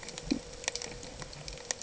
{"label": "ambient", "recorder": "HydroMoth"}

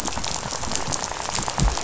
{"label": "biophony, rattle", "recorder": "SoundTrap 500"}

